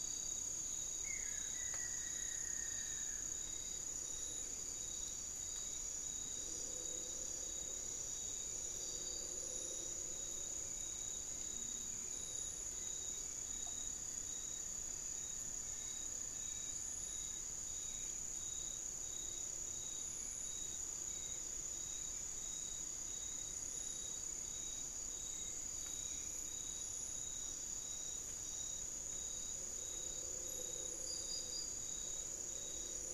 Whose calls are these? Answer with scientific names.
Turdus hauxwelli, Xiphorhynchus guttatus, unidentified bird